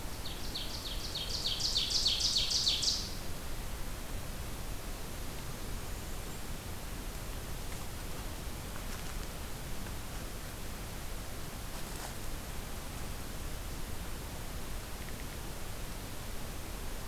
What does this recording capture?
Ovenbird, Blackburnian Warbler